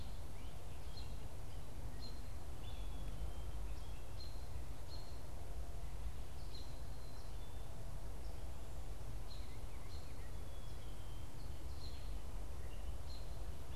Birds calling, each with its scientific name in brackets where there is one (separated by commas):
American Robin (Turdus migratorius), Black-capped Chickadee (Poecile atricapillus)